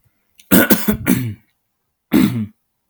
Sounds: Throat clearing